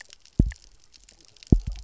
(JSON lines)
{"label": "biophony, double pulse", "recorder": "SoundTrap 300"}